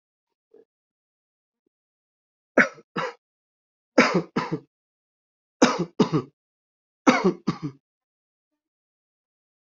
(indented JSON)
{
  "expert_labels": [
    {
      "quality": "ok",
      "cough_type": "dry",
      "dyspnea": false,
      "wheezing": false,
      "stridor": false,
      "choking": false,
      "congestion": false,
      "nothing": true,
      "diagnosis": "healthy cough",
      "severity": "pseudocough/healthy cough"
    }
  ],
  "age": 38,
  "gender": "male",
  "respiratory_condition": false,
  "fever_muscle_pain": false,
  "status": "healthy"
}